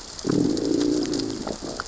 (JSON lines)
{"label": "biophony, growl", "recorder": "SoundTrap 600 or HydroMoth"}